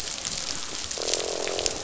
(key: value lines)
label: biophony, croak
recorder: SoundTrap 500